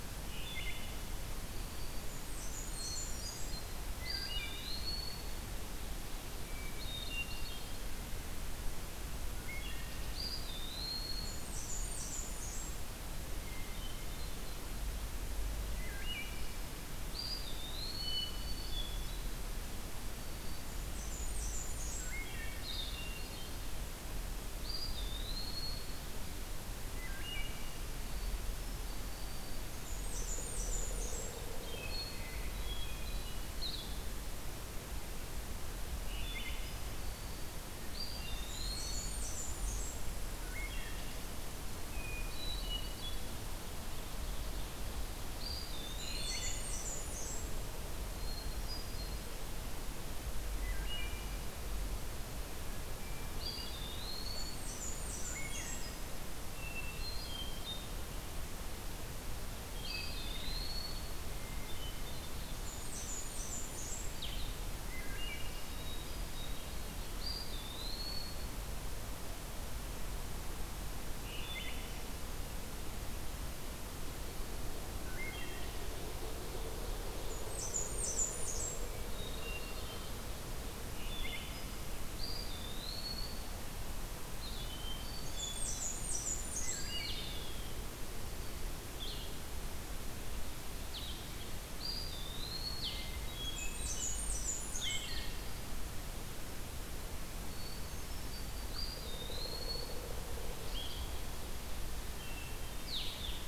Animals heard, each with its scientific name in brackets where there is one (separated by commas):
Ovenbird (Seiurus aurocapilla), Hermit Thrush (Catharus guttatus), Blackburnian Warbler (Setophaga fusca), Wood Thrush (Hylocichla mustelina), Blue-headed Vireo (Vireo solitarius), Pileated Woodpecker (Dryocopus pileatus), Eastern Wood-Pewee (Contopus virens)